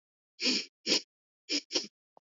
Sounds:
Sniff